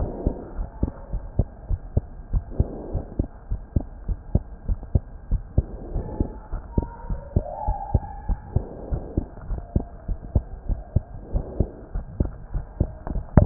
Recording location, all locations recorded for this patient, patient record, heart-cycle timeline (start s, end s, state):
pulmonary valve (PV)
aortic valve (AV)+pulmonary valve (PV)+tricuspid valve (TV)+mitral valve (MV)
#Age: Child
#Sex: Male
#Height: 129.0 cm
#Weight: 25.0 kg
#Pregnancy status: False
#Murmur: Absent
#Murmur locations: nan
#Most audible location: nan
#Systolic murmur timing: nan
#Systolic murmur shape: nan
#Systolic murmur grading: nan
#Systolic murmur pitch: nan
#Systolic murmur quality: nan
#Diastolic murmur timing: nan
#Diastolic murmur shape: nan
#Diastolic murmur grading: nan
#Diastolic murmur pitch: nan
#Diastolic murmur quality: nan
#Outcome: Normal
#Campaign: 2015 screening campaign
0.00	3.48	unannotated
3.48	3.62	S1
3.62	3.72	systole
3.72	3.84	S2
3.84	4.05	diastole
4.05	4.18	S1
4.18	4.32	systole
4.32	4.44	S2
4.44	4.65	diastole
4.65	4.80	S1
4.80	4.92	systole
4.92	5.04	S2
5.04	5.27	diastole
5.27	5.44	S1
5.44	5.54	systole
5.54	5.68	S2
5.68	5.92	diastole
5.92	6.06	S1
6.06	6.18	systole
6.18	6.32	S2
6.32	6.47	diastole
6.47	6.62	S1
6.62	6.75	systole
6.75	6.90	S2
6.90	7.07	diastole
7.07	7.20	S1
7.20	7.32	systole
7.32	7.44	S2
7.44	7.63	diastole
7.63	7.78	S1
7.78	7.90	systole
7.90	8.02	S2
8.02	8.26	diastole
8.26	8.40	S1
8.40	8.52	systole
8.52	8.64	S2
8.64	8.88	diastole
8.88	9.01	S1
9.01	9.13	systole
9.13	9.26	S2
9.26	9.47	diastole
9.47	9.62	S1
9.62	9.72	systole
9.72	9.84	S2
9.84	10.04	diastole
10.04	10.18	S1
10.18	10.32	systole
10.32	10.44	S2
10.44	10.65	diastole
10.65	10.79	S1
10.79	10.92	systole
10.92	11.06	S2
11.06	11.30	diastole
11.30	11.46	S1
11.46	11.57	systole
11.57	11.68	S2
11.68	11.91	diastole
11.91	12.05	S1
12.05	13.46	unannotated